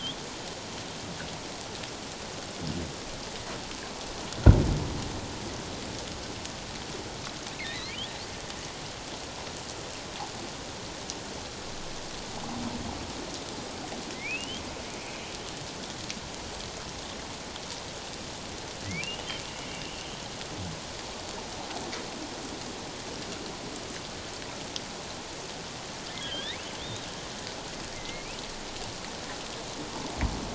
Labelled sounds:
7.6	8.0	humpback whale, 1.8 to 2.5 kHz
14.1	14.6	humpback whale, 1.9 to 3.4 kHz
18.8	19.3	humpback whale, 1.9 to 3.0 kHz
19.7	20.1	humpback whale, 2.7 to 3.0 kHz
26.2	27.1	humpback whale, 1.5 to 4.1 kHz
27.9	28.4	humpback whale, 2.0 to 2.7 kHz

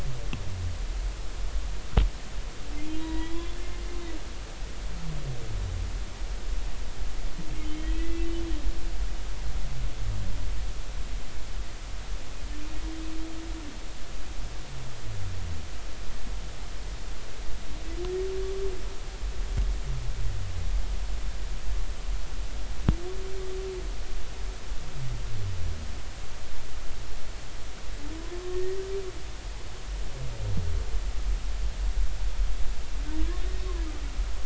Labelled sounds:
3.0	3.6	humpback whale, 0.90 to 3.5 kHz
7.6	8.4	humpback whale, 1.9 to 3.3 kHz
28.4	28.8	humpback whale, 1.0 to 1.9 kHz

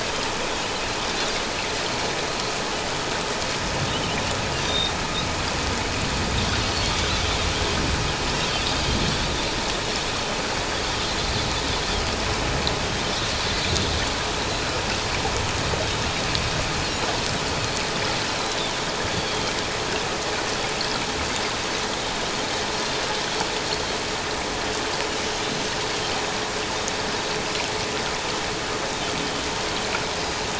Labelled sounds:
4.6	4.9	Pacific white-sided dolphin, 3.6 to 3.8 kHz
10.7	11.0	Pacific white-sided dolphin, 3.2 to 3.5 kHz
17.5	17.7	Pacific white-sided dolphin, 4.2 to 4.5 kHz
19.0	19.6	Pacific white-sided dolphin, 3.1 to 4.7 kHz

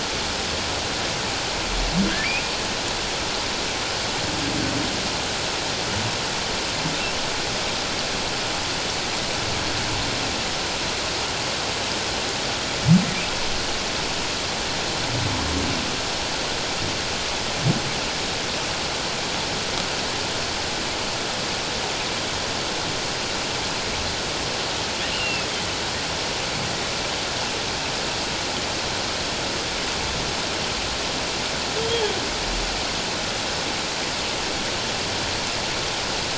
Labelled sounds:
25.1	25.5	humpback whale, 2.5 to 2.9 kHz
31.8	32.0	humpback whale, 3.1 to 3.3 kHz

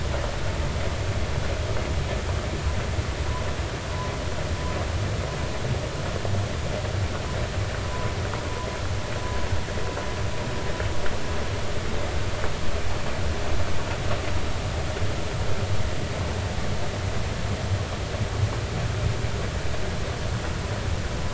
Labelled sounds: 7.8	8.1	humpback whale, 0.93 to 1.1 kHz

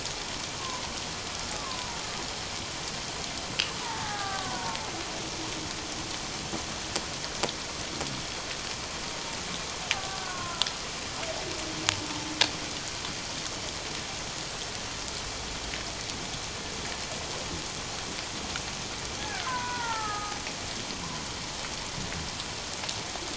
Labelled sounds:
1.5	2.0	killer whale, Bigg's (transient), 0.91 to 1.3 kHz
3.8	4.8	killer whale, Bigg's (transient), 0.78 to 1.7 kHz
9.9	10.7	killer whale, Bigg's (transient), 0.78 to 1.6 kHz
19.2	20.4	killer whale, Bigg's (transient), 0.78 to 2.0 kHz

